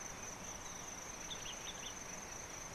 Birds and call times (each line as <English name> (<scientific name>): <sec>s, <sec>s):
Common Bulbul (Pycnonotus barbatus): 1.5s